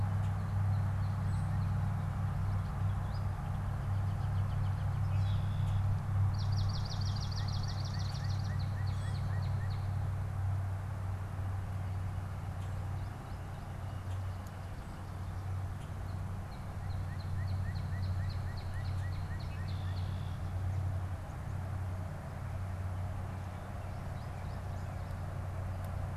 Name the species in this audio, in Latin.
Spinus tristis, Turdus migratorius, Agelaius phoeniceus, Melospiza georgiana, Cardinalis cardinalis, Dumetella carolinensis, Colaptes auratus